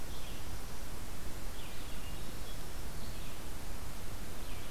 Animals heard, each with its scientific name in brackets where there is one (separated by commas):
Red-eyed Vireo (Vireo olivaceus), Hermit Thrush (Catharus guttatus)